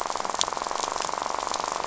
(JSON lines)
{"label": "biophony, rattle", "recorder": "SoundTrap 500"}